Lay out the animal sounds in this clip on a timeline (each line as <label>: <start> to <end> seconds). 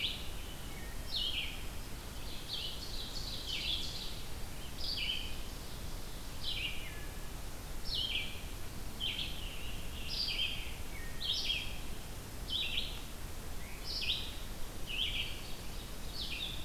Red-eyed Vireo (Vireo olivaceus): 0.0 to 16.6 seconds
Wood Thrush (Hylocichla mustelina): 0.2 to 1.0 seconds
Ovenbird (Seiurus aurocapilla): 1.9 to 4.1 seconds
Ovenbird (Seiurus aurocapilla): 4.9 to 6.5 seconds
Wood Thrush (Hylocichla mustelina): 6.7 to 7.4 seconds
Scarlet Tanager (Piranga olivacea): 9.2 to 11.2 seconds
Wood Thrush (Hylocichla mustelina): 10.9 to 11.4 seconds
Ovenbird (Seiurus aurocapilla): 15.1 to 16.3 seconds